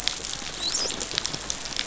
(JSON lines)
{"label": "biophony, dolphin", "recorder": "SoundTrap 500"}